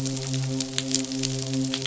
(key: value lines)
label: biophony, midshipman
recorder: SoundTrap 500